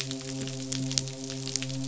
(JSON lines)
{"label": "biophony, midshipman", "recorder": "SoundTrap 500"}